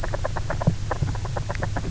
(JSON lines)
{"label": "biophony, grazing", "recorder": "SoundTrap 300"}